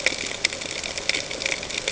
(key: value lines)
label: ambient
recorder: HydroMoth